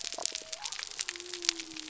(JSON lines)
{"label": "biophony", "recorder": "SoundTrap 300"}